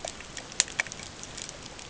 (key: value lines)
label: ambient
recorder: HydroMoth